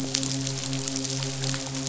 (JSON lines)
{"label": "biophony, midshipman", "recorder": "SoundTrap 500"}